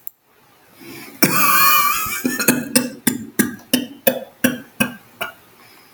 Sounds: Cough